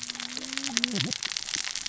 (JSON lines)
{"label": "biophony, cascading saw", "recorder": "SoundTrap 600 or HydroMoth"}